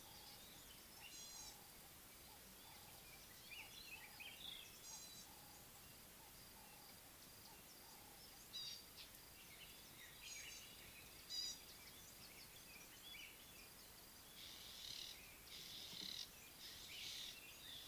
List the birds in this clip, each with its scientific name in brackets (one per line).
White-browed Robin-Chat (Cossypha heuglini)
Ring-necked Dove (Streptopelia capicola)
Northern Puffback (Dryoscopus gambensis)
Gray-backed Camaroptera (Camaroptera brevicaudata)